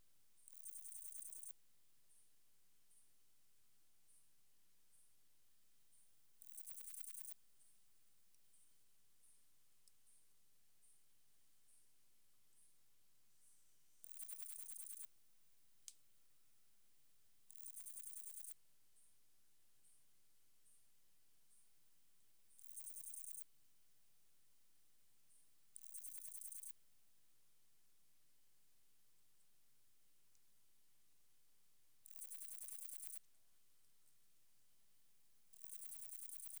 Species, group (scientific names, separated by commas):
Parnassiana fusca, Orthoptera